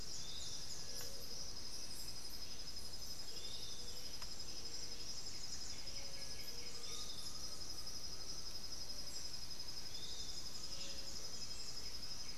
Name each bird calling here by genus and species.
Crypturellus soui, Legatus leucophaius, unidentified bird, Pachyramphus polychopterus, Crypturellus undulatus